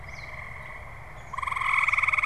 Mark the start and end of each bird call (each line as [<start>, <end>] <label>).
[0.00, 2.26] Gray Catbird (Dumetella carolinensis)